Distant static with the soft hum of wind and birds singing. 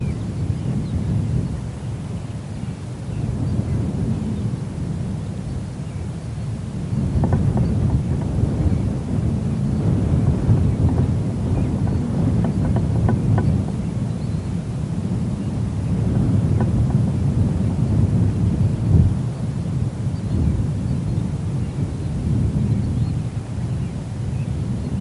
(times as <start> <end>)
6.6 17.2